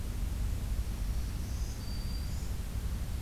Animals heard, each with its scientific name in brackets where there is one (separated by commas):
Black-throated Green Warbler (Setophaga virens)